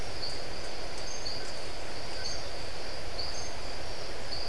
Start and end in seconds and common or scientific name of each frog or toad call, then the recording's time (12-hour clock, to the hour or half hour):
0.0	4.4	marbled tropical bullfrog
1.9	4.4	Iporanga white-lipped frog
5:30pm